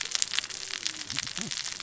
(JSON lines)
{"label": "biophony, cascading saw", "recorder": "SoundTrap 600 or HydroMoth"}